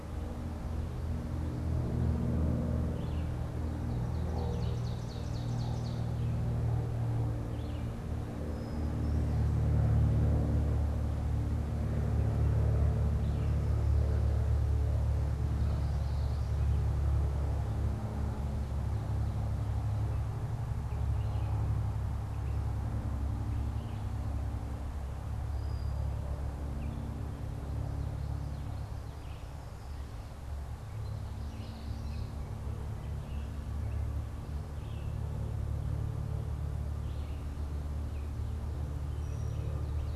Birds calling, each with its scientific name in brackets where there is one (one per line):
Red-eyed Vireo (Vireo olivaceus)
Common Yellowthroat (Geothlypis trichas)
Ovenbird (Seiurus aurocapilla)
Brown-headed Cowbird (Molothrus ater)